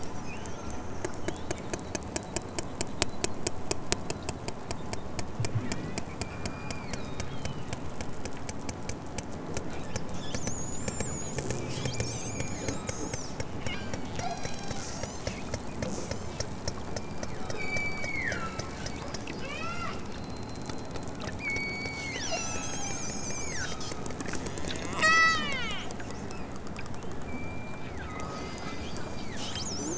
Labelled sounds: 5.5	7.8	killer whale, southern Alaska resident, 1.1 to 6.8 kHz
11.8	13.1	killer whale, southern Alaska resident, 1.0 to 5.1 kHz
13.6	15.3	killer whale, southern Alaska resident, 0.46 to 8.0 kHz
16.6	18.8	killer whale, southern Alaska resident, 0.92 to 8.0 kHz
19.3	20.0	killer whale, southern Alaska resident, 0.69 to 8.0 kHz
21.3	24.1	killer whale, southern Alaska resident, 0.97 to 8.0 kHz
24.9	25.9	killer whale, southern Alaska resident, 0.41 to 8.0 kHz
27.2	29.5	killer whale, southern Alaska resident, 1.0 to 5.3 kHz

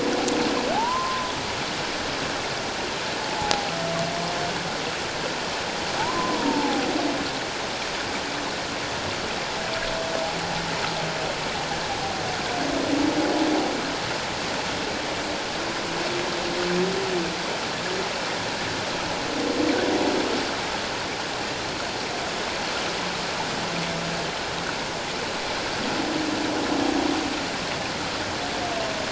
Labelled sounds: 0.7	1.3	humpback whale, 0.78 to 1.1 kHz
3.2	3.7	humpback whale, 0.78 to 0.94 kHz
6.0	6.8	humpback whale, 0.78 to 1.2 kHz

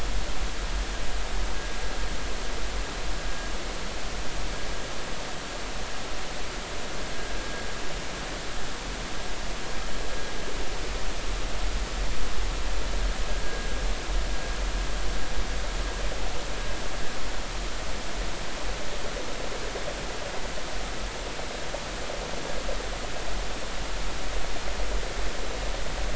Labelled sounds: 13.4	13.7	vessel noise, 1.6 to 1.7 kHz

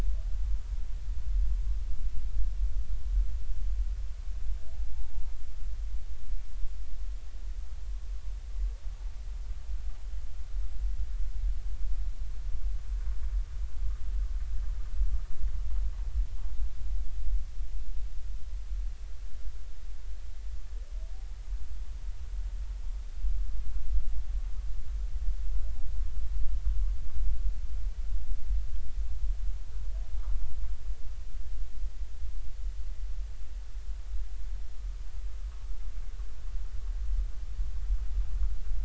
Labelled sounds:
4.9	5.3	humpback whale, 0.83 to 0.96 kHz

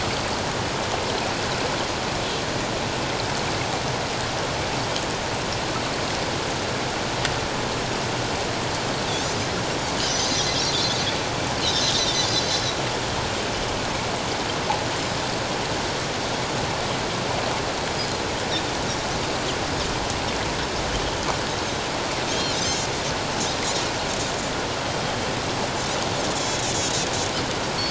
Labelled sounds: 10.0	11.0	Pacific white-sided dolphin, 3.3 to 6.4 kHz
11.6	11.8	Pacific white-sided dolphin, 3.5 to 4.6 kHz
22.3	22.9	Pacific white-sided dolphin, 3.0 to 6.4 kHz
26.3	27.1	Pacific white-sided dolphin, 3.2 to 7.6 kHz

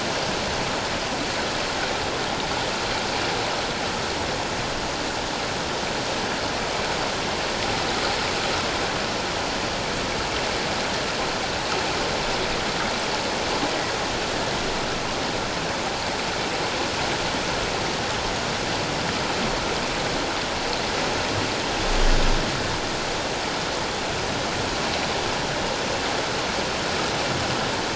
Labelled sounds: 13.7	13.9	humpback whale, 1.9 to 2.0 kHz

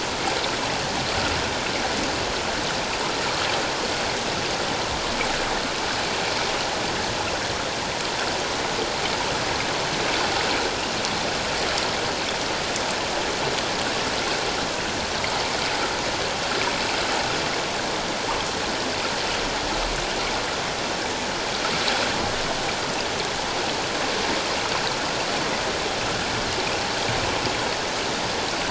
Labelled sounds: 3.2	3.5	water noise, 1.1 to 1.5 kHz

